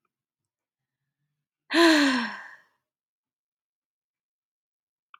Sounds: Sigh